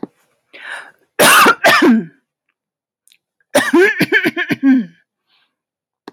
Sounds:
Throat clearing